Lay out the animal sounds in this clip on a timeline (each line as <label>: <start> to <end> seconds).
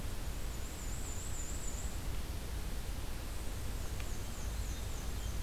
Black-and-white Warbler (Mniotilta varia): 0.2 to 2.0 seconds
Black-and-white Warbler (Mniotilta varia): 3.2 to 5.4 seconds